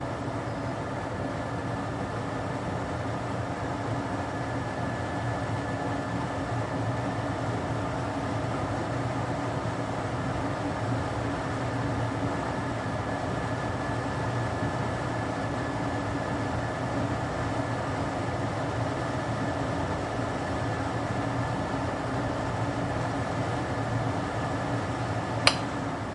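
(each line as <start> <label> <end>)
0.0 A fast-spinning fan is making noise. 26.1
25.4 A short click. 25.6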